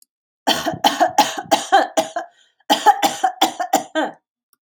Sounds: Cough